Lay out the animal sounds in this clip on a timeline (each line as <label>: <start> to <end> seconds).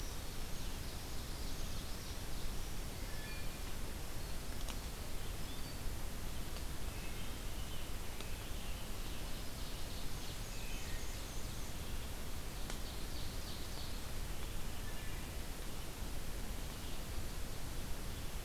Ovenbird (Seiurus aurocapilla): 0.0 to 2.6 seconds
Wood Thrush (Hylocichla mustelina): 2.9 to 3.6 seconds
Wood Thrush (Hylocichla mustelina): 6.7 to 7.5 seconds
American Robin (Turdus migratorius): 7.3 to 9.1 seconds
Ovenbird (Seiurus aurocapilla): 8.7 to 11.6 seconds
Black-and-white Warbler (Mniotilta varia): 9.9 to 11.9 seconds
Wood Thrush (Hylocichla mustelina): 10.4 to 11.3 seconds
Ovenbird (Seiurus aurocapilla): 12.1 to 14.1 seconds
Wood Thrush (Hylocichla mustelina): 14.7 to 15.6 seconds